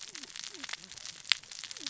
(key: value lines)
label: biophony, cascading saw
recorder: SoundTrap 600 or HydroMoth